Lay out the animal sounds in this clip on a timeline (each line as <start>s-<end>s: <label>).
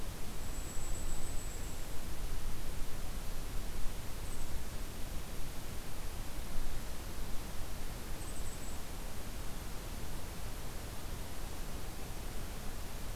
0.2s-1.9s: Blackpoll Warbler (Setophaga striata)
8.1s-8.9s: Golden-crowned Kinglet (Regulus satrapa)